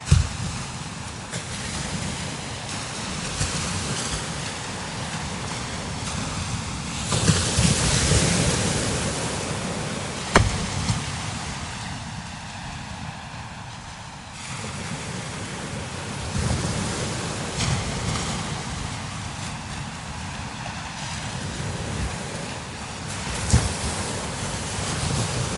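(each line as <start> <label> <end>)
7.1 Waves crashing on the beach. 10.5
16.3 Waves crashing on the beach. 19.1
23.1 Waves crashing on the beach. 25.6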